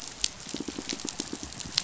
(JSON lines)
{"label": "biophony, pulse", "recorder": "SoundTrap 500"}